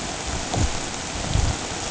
{"label": "ambient", "recorder": "HydroMoth"}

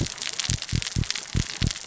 {"label": "biophony", "recorder": "SoundTrap 600 or HydroMoth"}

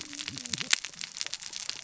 {"label": "biophony, cascading saw", "recorder": "SoundTrap 600 or HydroMoth"}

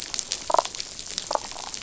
{"label": "biophony, damselfish", "recorder": "SoundTrap 500"}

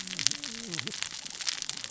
{"label": "biophony, cascading saw", "recorder": "SoundTrap 600 or HydroMoth"}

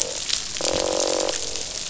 {"label": "biophony, croak", "recorder": "SoundTrap 500"}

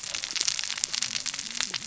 {"label": "biophony, cascading saw", "recorder": "SoundTrap 600 or HydroMoth"}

